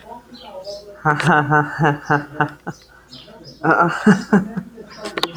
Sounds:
Laughter